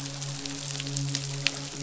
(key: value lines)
label: biophony, midshipman
recorder: SoundTrap 500